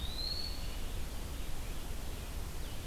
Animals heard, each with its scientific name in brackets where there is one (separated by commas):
Blue-headed Vireo (Vireo solitarius), Red-eyed Vireo (Vireo olivaceus), Eastern Wood-Pewee (Contopus virens)